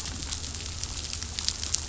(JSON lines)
{"label": "anthrophony, boat engine", "recorder": "SoundTrap 500"}